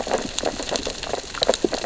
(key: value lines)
label: biophony, sea urchins (Echinidae)
recorder: SoundTrap 600 or HydroMoth